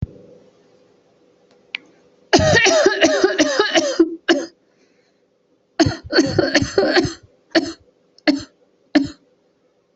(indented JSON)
{
  "expert_labels": [
    {
      "quality": "good",
      "cough_type": "dry",
      "dyspnea": false,
      "wheezing": false,
      "stridor": false,
      "choking": false,
      "congestion": false,
      "nothing": false,
      "diagnosis": "lower respiratory tract infection",
      "severity": "mild"
    }
  ],
  "age": 45,
  "gender": "female",
  "respiratory_condition": false,
  "fever_muscle_pain": false,
  "status": "symptomatic"
}